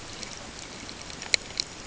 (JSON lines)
{"label": "ambient", "recorder": "HydroMoth"}